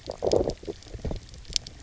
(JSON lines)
{"label": "biophony, low growl", "recorder": "SoundTrap 300"}